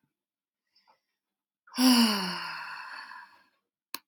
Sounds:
Sigh